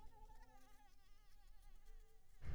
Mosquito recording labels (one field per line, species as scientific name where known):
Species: Anopheles maculipalpis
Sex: female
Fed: unfed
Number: one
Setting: cup